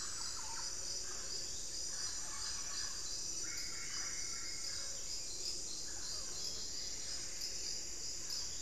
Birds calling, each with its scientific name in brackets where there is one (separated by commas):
Thrush-like Wren (Campylorhynchus turdinus), Screaming Piha (Lipaugus vociferans), Plumbeous Antbird (Myrmelastes hyperythrus), Solitary Black Cacique (Cacicus solitarius), Mealy Parrot (Amazona farinosa), Buff-throated Saltator (Saltator maximus)